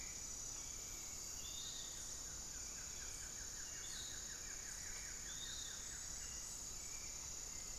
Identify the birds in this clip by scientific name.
Myrmotherula menetriesii, Turdus hauxwelli, Legatus leucophaius, Xiphorhynchus guttatus